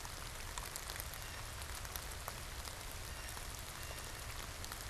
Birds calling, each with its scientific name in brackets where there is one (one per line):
Blue Jay (Cyanocitta cristata)